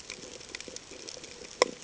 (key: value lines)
label: ambient
recorder: HydroMoth